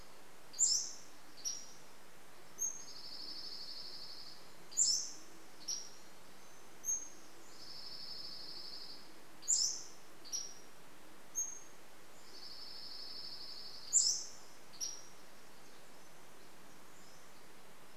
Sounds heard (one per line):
Band-tailed Pigeon call
Pacific-slope Flycatcher song
Dark-eyed Junco song